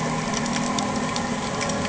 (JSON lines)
{"label": "anthrophony, boat engine", "recorder": "HydroMoth"}